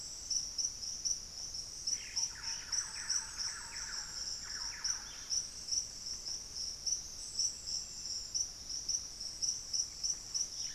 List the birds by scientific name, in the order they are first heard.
Campylorhynchus turdinus, Cacicus cela, Saltator maximus